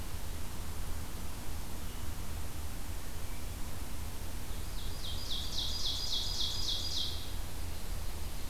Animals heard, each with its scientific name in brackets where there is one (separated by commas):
Ovenbird (Seiurus aurocapilla)